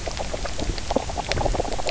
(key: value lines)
label: biophony, knock croak
recorder: SoundTrap 300